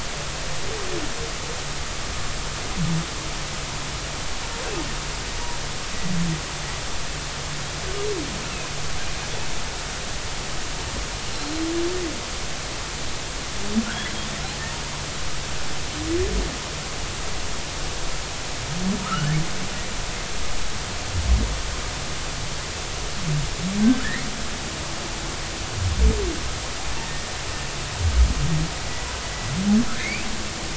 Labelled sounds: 13.8	14.1	humpback whale, 1.3 to 1.8 kHz
19.0	19.3	humpback whale, 1.2 to 1.5 kHz
27.0	27.3	humpback whale, 1.8 to 1.9 kHz
30.0	30.3	humpback whale, 2.0 to 2.6 kHz

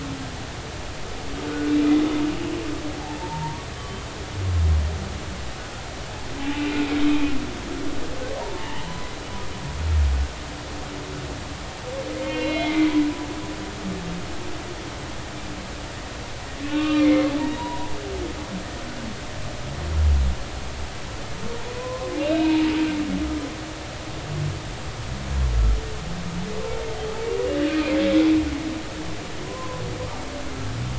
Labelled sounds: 1.4	1.9	humpback whale, 1.4 to 2.5 kHz
3.2	4.0	humpback whale, 0.83 to 3.3 kHz
6.4	7.3	humpback whale, 0.80 to 2.6 kHz
8.4	9.1	humpback whale, 0.83 to 3.1 kHz
12.1	13.0	humpback whale, 2.0 to 4.1 kHz
16.6	17.9	humpback whale, 0.86 to 3.9 kHz
21.7	22.7	humpback whale, 0.86 to 3.9 kHz
27.7	27.9	humpback whale, 2.3 to 2.5 kHz
29.4	29.8	humpback whale, 0.96 to 1.1 kHz

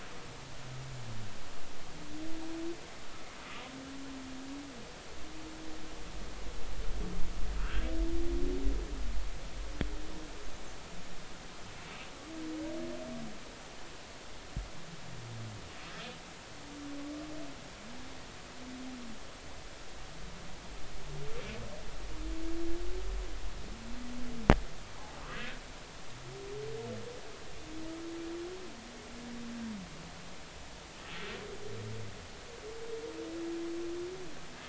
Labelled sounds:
7.6	7.9	humpback whale, 1.2 to 1.7 kHz

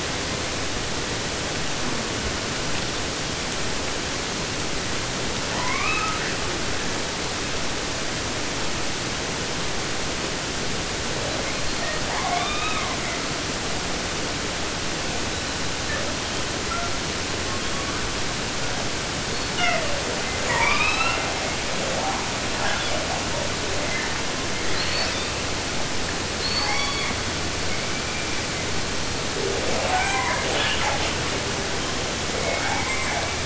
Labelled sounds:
5.5	6.4	killer whale, 0.50 to 5.4 kHz
11.1	13.2	killer whale, 0.22 to 4.8 kHz
15.3	18.0	killer whale, southern resident, J pod, call S42, 0.19 to 4.7 kHz
19.2	20.2	killer whale, southern resident, J pod, call S42, 0.23 to 6.2 kHz
20.1	21.6	killer whale, southern resident, 0.19 to 8.0 kHz
21.6	22.3	killer whale, 0.22 to 1.9 kHz
22.6	23.2	killer whale, 0.34 to 7.4 kHz
23.6	24.3	killer whale, 0.27 to 2.5 kHz
24.5	25.4	killer whale, southern resident, 0.33 to 6.5 kHz
26.4	27.4	killer whale, southern resident, 0.50 to 7.1 kHz
27.7	28.8	killer whale, 1.8 to 2.9 kHz
29.3	31.4	killer whale, 0.25 to 8.0 kHz
32.3	33.4	killer whale, 0.17 to 8.0 kHz

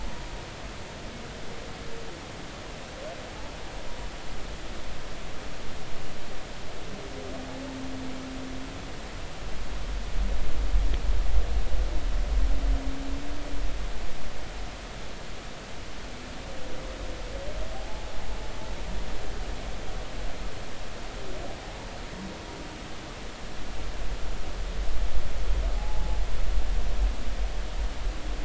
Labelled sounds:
17.7	18.1	humpback whale, 0.80 to 0.90 kHz
25.8	26.2	humpback whale, 0.80 to 0.96 kHz

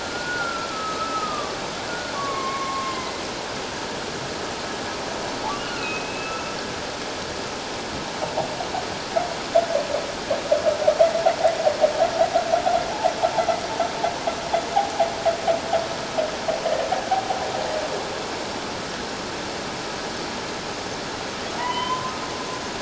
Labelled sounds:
0.0	3.2	humpback whale, 0.97 to 2.3 kHz
5.6	6.5	humpback whale, 1.3 to 2.9 kHz
21.6	22.1	humpback whale, 0.91 to 3.2 kHz

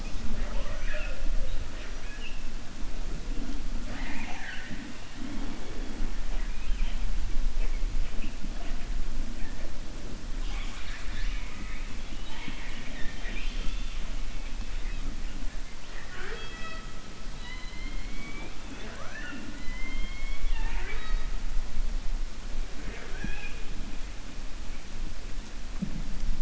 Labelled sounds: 6.3	7.0	killer whale, 1.7 to 4.0 kHz
15.8	16.9	killer whale, 0.39 to 5.3 kHz
17.3	18.6	killer whale, 0.30 to 4.3 kHz

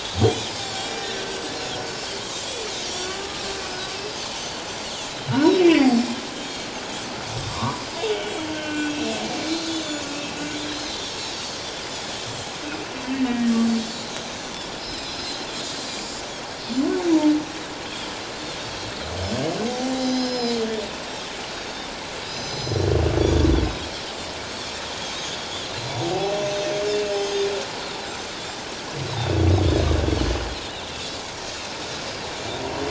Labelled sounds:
0.2	1.1	Pacific white-sided dolphin, 3.2 to 8.0 kHz
2.1	3.1	Pacific white-sided dolphin, 3.0 to 6.0 kHz
3.1	3.4	humpback whale, 1.1 to 1.2 kHz
3.7	4.2	Pacific white-sided dolphin, 4.6 to 5.2 kHz
5.3	6.7	Pacific white-sided dolphin, 3.7 to 7.8 kHz
5.6	5.9	humpback whale, 1.9 to 2.4 kHz
7.5	7.8	humpback whale, 0.91 to 1.2 kHz
8.5	9.2	humpback whale, 1.4 to 2.8 kHz
8.6	8.9	Pacific white-sided dolphin, 2.3 to 2.5 kHz
9.7	10.4	Pacific white-sided dolphin, 2.5 to 6.4 kHz
10.7	11.4	Pacific white-sided dolphin, 3.4 to 5.4 kHz
13.3	13.5	humpback whale, 1.8 to 1.9 kHz
13.6	14.2	Pacific white-sided dolphin, 3.8 to 7.0 kHz
14.7	15.5	Pacific white-sided dolphin, 3.8 to 5.4 kHz
15.8	16.2	Pacific white-sided dolphin, 4.7 to 7.7 kHz
17.0	18.2	Pacific white-sided dolphin, 3.0 to 5.9 kHz
19.6	20.6	Pacific white-sided dolphin, 3.8 to 6.4 kHz
19.7	20.1	humpback whale, 0.78 to 0.84 kHz
21.5	21.9	Pacific white-sided dolphin, 3.5 to 3.8 kHz
22.2	23.5	Pacific white-sided dolphin, 3.2 to 7.2 kHz
25.3	26.8	Pacific white-sided dolphin, 3.2 to 6.2 kHz
26.0	26.3	humpback whale, 0.78 to 0.84 kHz
27.1	27.3	Pacific white-sided dolphin, 6.2 to 6.3 kHz

